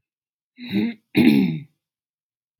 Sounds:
Throat clearing